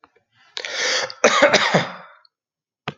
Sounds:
Cough